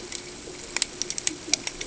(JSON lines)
{"label": "ambient", "recorder": "HydroMoth"}